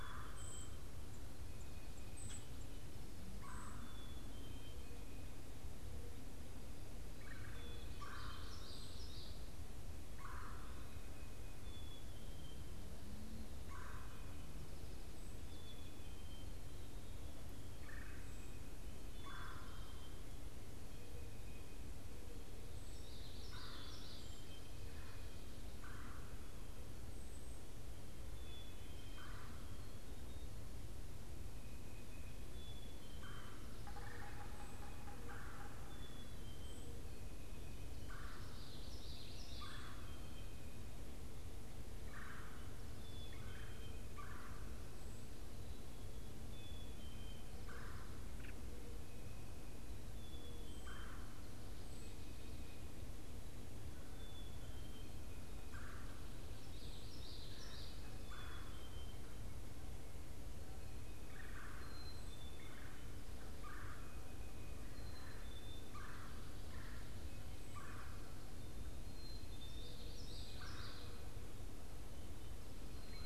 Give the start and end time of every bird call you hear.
[0.00, 0.73] Brown Creeper (Certhia americana)
[0.00, 29.53] Black-capped Chickadee (Poecile atricapillus)
[0.00, 29.83] Red-bellied Woodpecker (Melanerpes carolinus)
[1.93, 4.03] Brown Creeper (Certhia americana)
[8.13, 9.73] Common Yellowthroat (Geothlypis trichas)
[22.93, 24.73] Common Yellowthroat (Geothlypis trichas)
[27.13, 27.73] unidentified bird
[32.23, 73.26] Black-capped Chickadee (Poecile atricapillus)
[32.83, 73.26] Red-bellied Woodpecker (Melanerpes carolinus)
[33.73, 35.43] Yellow-bellied Sapsucker (Sphyrapicus varius)
[38.53, 39.93] Common Yellowthroat (Geothlypis trichas)
[56.63, 58.13] Common Yellowthroat (Geothlypis trichas)
[69.93, 71.23] Yellow-bellied Sapsucker (Sphyrapicus varius)

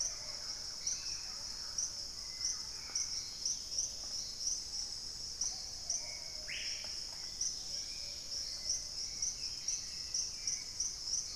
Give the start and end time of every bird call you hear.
[0.00, 3.34] Thrush-like Wren (Campylorhynchus turdinus)
[0.00, 11.36] Dusky-capped Greenlet (Pachysylvia hypoxantha)
[0.00, 11.36] Hauxwell's Thrush (Turdus hauxwelli)
[0.00, 11.36] Plumbeous Pigeon (Patagioenas plumbea)
[0.74, 1.34] unidentified bird
[4.64, 7.04] Screaming Piha (Lipaugus vociferans)
[9.04, 10.94] Black-capped Becard (Pachyramphus marginatus)
[9.44, 11.36] Thrush-like Wren (Campylorhynchus turdinus)

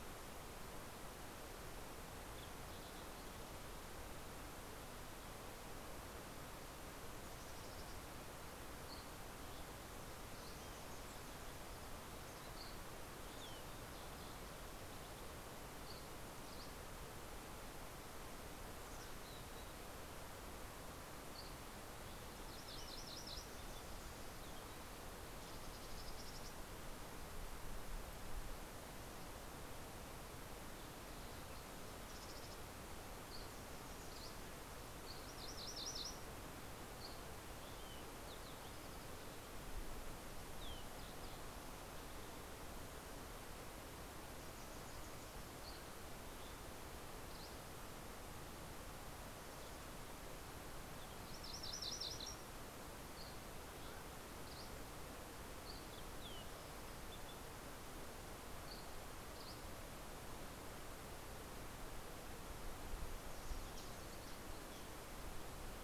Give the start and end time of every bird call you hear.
[6.87, 8.17] Mountain Chickadee (Poecile gambeli)
[8.37, 10.67] Dusky Flycatcher (Empidonax oberholseri)
[12.27, 15.67] Fox Sparrow (Passerella iliaca)
[15.77, 17.37] Dusky Flycatcher (Empidonax oberholseri)
[18.17, 19.77] Mountain Chickadee (Poecile gambeli)
[22.17, 23.87] MacGillivray's Warbler (Geothlypis tolmiei)
[24.37, 27.37] Mountain Chickadee (Poecile gambeli)
[31.17, 33.17] Mountain Chickadee (Poecile gambeli)
[33.07, 34.57] Dusky Flycatcher (Empidonax oberholseri)
[35.07, 36.77] MacGillivray's Warbler (Geothlypis tolmiei)
[36.97, 38.17] Dusky Flycatcher (Empidonax oberholseri)
[39.67, 42.97] Fox Sparrow (Passerella iliaca)
[45.47, 48.47] Dusky Flycatcher (Empidonax oberholseri)
[51.17, 52.67] MacGillivray's Warbler (Geothlypis tolmiei)
[52.97, 54.97] Dusky Flycatcher (Empidonax oberholseri)
[55.27, 57.57] Fox Sparrow (Passerella iliaca)
[58.47, 60.37] Dusky Flycatcher (Empidonax oberholseri)

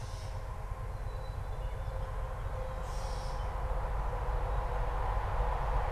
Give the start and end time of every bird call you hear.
[0.00, 5.91] Gray Catbird (Dumetella carolinensis)

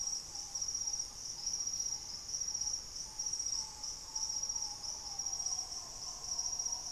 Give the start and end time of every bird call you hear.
[0.00, 6.92] Green Ibis (Mesembrinibis cayennensis)
[0.00, 6.92] Piratic Flycatcher (Legatus leucophaius)

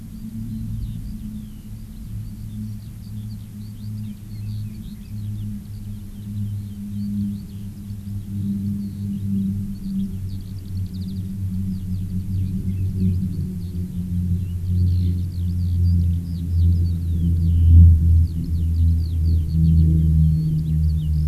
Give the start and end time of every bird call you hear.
[0.00, 21.27] Eurasian Skylark (Alauda arvensis)
[4.00, 5.20] Chinese Hwamei (Garrulax canorus)

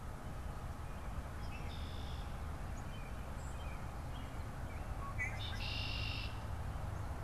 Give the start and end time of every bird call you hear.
[1.20, 2.30] Red-winged Blackbird (Agelaius phoeniceus)
[2.50, 4.50] American Robin (Turdus migratorius)
[3.30, 3.70] White-throated Sparrow (Zonotrichia albicollis)
[4.80, 6.70] Red-winged Blackbird (Agelaius phoeniceus)

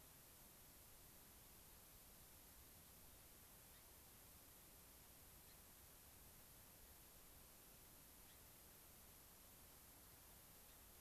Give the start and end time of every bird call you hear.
[3.61, 3.91] Gray-crowned Rosy-Finch (Leucosticte tephrocotis)
[5.31, 5.71] Gray-crowned Rosy-Finch (Leucosticte tephrocotis)
[8.11, 8.51] Gray-crowned Rosy-Finch (Leucosticte tephrocotis)

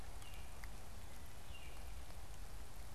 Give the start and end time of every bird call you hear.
[0.00, 2.94] Baltimore Oriole (Icterus galbula)

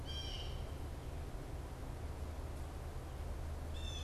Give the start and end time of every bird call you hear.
[0.00, 4.03] Blue Jay (Cyanocitta cristata)

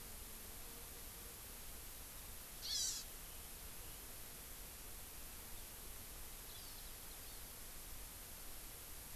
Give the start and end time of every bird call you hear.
[2.60, 3.10] Hawaii Amakihi (Chlorodrepanis virens)
[6.50, 6.90] Hawaii Amakihi (Chlorodrepanis virens)
[7.20, 7.50] Hawaii Amakihi (Chlorodrepanis virens)

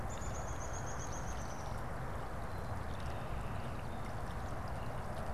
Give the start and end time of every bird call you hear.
[0.00, 1.90] Downy Woodpecker (Dryobates pubescens)

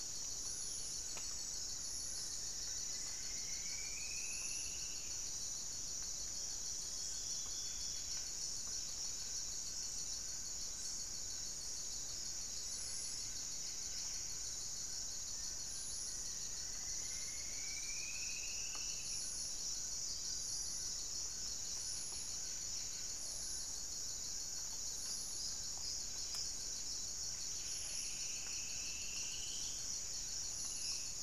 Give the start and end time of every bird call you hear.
[0.00, 6.52] Horned Screamer (Anhima cornuta)
[0.00, 31.12] Amazonian Trogon (Trogon ramonianus)
[0.00, 31.22] Buff-breasted Wren (Cantorchilus leucotis)
[0.12, 1.52] Long-winged Antwren (Myrmotherula longipennis)
[1.72, 5.22] Striped Woodcreeper (Xiphorhynchus obsoletus)
[12.32, 14.42] unidentified bird
[15.92, 19.52] Striped Woodcreeper (Xiphorhynchus obsoletus)
[25.72, 26.52] unidentified bird
[27.32, 29.82] Striped Woodcreeper (Xiphorhynchus obsoletus)
[30.42, 31.22] Black-spotted Bare-eye (Phlegopsis nigromaculata)

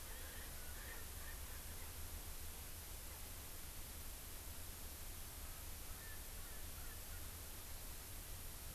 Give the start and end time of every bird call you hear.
[0.00, 1.90] Erckel's Francolin (Pternistis erckelii)

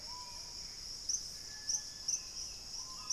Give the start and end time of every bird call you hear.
[0.00, 0.70] Bright-rumped Attila (Attila spadiceus)
[0.00, 3.12] Screaming Piha (Lipaugus vociferans)
[1.40, 3.12] unidentified bird
[1.80, 3.12] Black-capped Becard (Pachyramphus marginatus)
[1.90, 3.12] Thrush-like Wren (Campylorhynchus turdinus)

